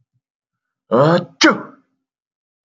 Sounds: Sneeze